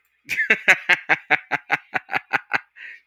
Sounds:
Laughter